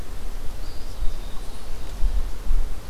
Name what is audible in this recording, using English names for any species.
Eastern Wood-Pewee